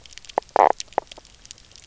{"label": "biophony, knock croak", "recorder": "SoundTrap 300"}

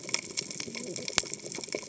{"label": "biophony, cascading saw", "recorder": "HydroMoth"}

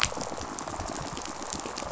{"label": "biophony, rattle response", "recorder": "SoundTrap 500"}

